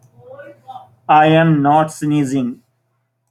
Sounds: Sneeze